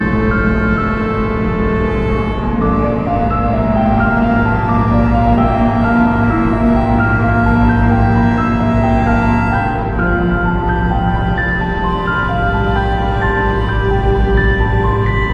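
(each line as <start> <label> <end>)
0.0 A piano plays an atmospheric melody. 15.3
0.0 Dark ambient sound. 15.3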